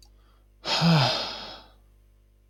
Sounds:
Sigh